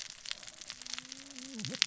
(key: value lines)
label: biophony, cascading saw
recorder: SoundTrap 600 or HydroMoth